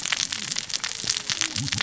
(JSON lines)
{"label": "biophony, cascading saw", "recorder": "SoundTrap 600 or HydroMoth"}